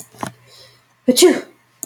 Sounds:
Sneeze